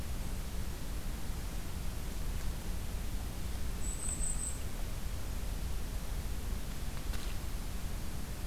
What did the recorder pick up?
Golden-crowned Kinglet